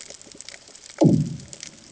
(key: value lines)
label: anthrophony, bomb
recorder: HydroMoth